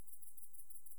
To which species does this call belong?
Tettigonia viridissima